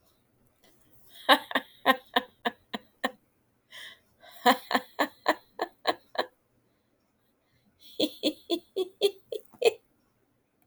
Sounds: Laughter